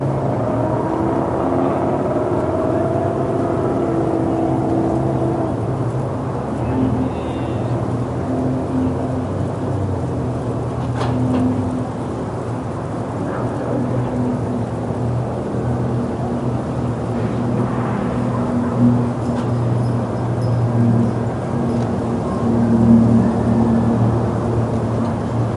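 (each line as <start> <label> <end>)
0.0 A loud truck speeds up in the distance. 8.1
0.0 Engines of cars driving on a road in the distance. 25.6
6.5 A muffled cow mooing in the distance. 7.8
10.8 Something touches a metallic object. 11.5
13.1 A dog barks muffled and in the distance outdoors. 14.6
17.1 A dog barks muffled and in the distance outdoors. 19.3
19.1 A repeating sharp clinking sound. 22.5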